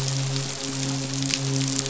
{"label": "biophony, midshipman", "recorder": "SoundTrap 500"}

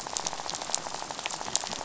{"label": "biophony, rattle", "recorder": "SoundTrap 500"}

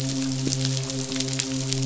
{"label": "biophony, midshipman", "recorder": "SoundTrap 500"}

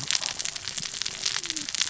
{"label": "biophony, cascading saw", "recorder": "SoundTrap 600 or HydroMoth"}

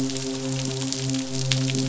{"label": "biophony, midshipman", "recorder": "SoundTrap 500"}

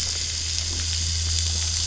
{"label": "anthrophony, boat engine", "recorder": "SoundTrap 500"}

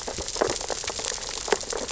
{"label": "biophony, sea urchins (Echinidae)", "recorder": "SoundTrap 600 or HydroMoth"}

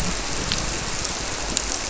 {"label": "biophony", "recorder": "SoundTrap 300"}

